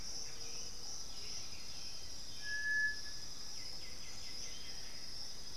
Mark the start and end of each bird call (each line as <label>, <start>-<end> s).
Russet-backed Oropendola (Psarocolius angustifrons), 0.0-1.8 s
Black-billed Thrush (Turdus ignobilis), 0.0-5.6 s
Boat-billed Flycatcher (Megarynchus pitangua), 0.0-5.6 s
Undulated Tinamou (Crypturellus undulatus), 0.1-2.2 s
White-winged Becard (Pachyramphus polychopterus), 3.3-5.2 s